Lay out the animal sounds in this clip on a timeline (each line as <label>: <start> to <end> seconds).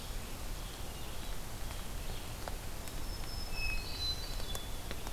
Red-eyed Vireo (Vireo olivaceus): 0.0 to 2.5 seconds
Black-throated Green Warbler (Setophaga virens): 2.7 to 4.5 seconds
Hermit Thrush (Catharus guttatus): 3.4 to 4.8 seconds